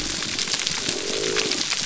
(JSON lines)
{"label": "biophony", "recorder": "SoundTrap 300"}